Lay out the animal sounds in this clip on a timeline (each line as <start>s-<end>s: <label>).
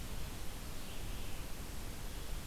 0.0s-2.5s: Red-eyed Vireo (Vireo olivaceus)